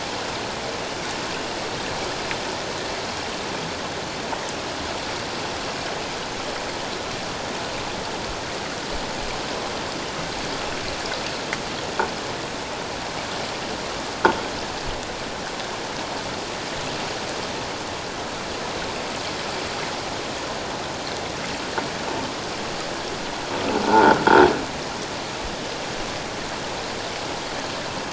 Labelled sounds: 23.8	24.2	croaking sound likely from a nearby submerged object, 0.78 to 1.6 kHz

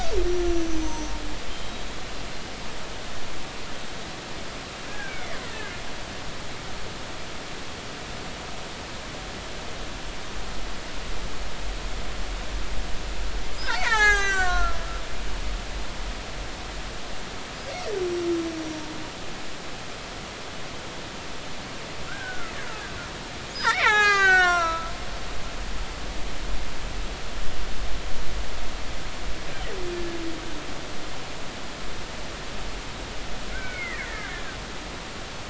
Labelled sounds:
0.2	1.8	killer whale, Bigg's (transient), 0.86 to 6.3 kHz
4.9	5.5	killer whale, Bigg's (transient), 1.4 to 2.5 kHz
13.8	14.8	killer whale, Bigg's (transient), 0.80 to 8.0 kHz
22.1	22.5	killer whale, Bigg's (transient), 1.2 to 1.7 kHz
23.6	24.9	killer whale, Bigg's (transient), 0.80 to 8.0 kHz
33.5	34.3	killer whale, Bigg's (transient), 1.4 to 2.5 kHz

